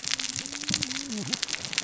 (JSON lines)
{"label": "biophony, cascading saw", "recorder": "SoundTrap 600 or HydroMoth"}